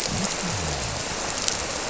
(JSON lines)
{"label": "biophony", "recorder": "SoundTrap 300"}